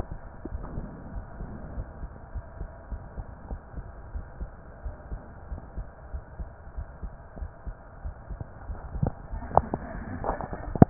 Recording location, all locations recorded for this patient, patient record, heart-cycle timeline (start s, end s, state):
pulmonary valve (PV)
aortic valve (AV)+pulmonary valve (PV)+tricuspid valve (TV)+mitral valve (MV)
#Age: Child
#Sex: Male
#Height: 155.0 cm
#Weight: 46.8 kg
#Pregnancy status: False
#Murmur: Absent
#Murmur locations: nan
#Most audible location: nan
#Systolic murmur timing: nan
#Systolic murmur shape: nan
#Systolic murmur grading: nan
#Systolic murmur pitch: nan
#Systolic murmur quality: nan
#Diastolic murmur timing: nan
#Diastolic murmur shape: nan
#Diastolic murmur grading: nan
#Diastolic murmur pitch: nan
#Diastolic murmur quality: nan
#Outcome: Normal
#Campaign: 2015 screening campaign
0.00	1.04	unannotated
1.04	1.12	diastole
1.12	1.24	S1
1.24	1.38	systole
1.38	1.50	S2
1.50	1.74	diastole
1.74	1.86	S1
1.86	2.00	systole
2.00	2.10	S2
2.10	2.33	diastole
2.33	2.44	S1
2.44	2.58	systole
2.58	2.68	S2
2.68	2.87	diastole
2.87	3.04	S1
3.04	3.13	systole
3.13	3.26	S2
3.26	3.47	diastole
3.47	3.60	S1
3.60	3.73	systole
3.73	3.86	S2
3.86	4.10	diastole
4.10	4.26	S1
4.26	4.37	systole
4.37	4.50	S2
4.50	4.81	diastole
4.81	4.96	S1
4.96	5.08	systole
5.08	5.20	S2
5.20	5.47	diastole
5.47	5.60	S1
5.60	5.73	systole
5.73	5.86	S2
5.86	6.10	diastole
6.10	6.22	S1
6.22	6.36	systole
6.36	6.48	S2
6.48	6.73	diastole
6.73	6.90	S1
6.90	7.00	systole
7.00	7.12	S2
7.12	7.37	diastole
7.37	7.50	S1
7.50	7.63	systole
7.63	7.74	S2
7.74	8.01	diastole
8.01	8.14	S1
8.14	8.27	systole
8.27	8.40	S2
8.40	8.66	diastole
8.66	8.78	S1
8.78	8.84	systole
8.84	10.90	unannotated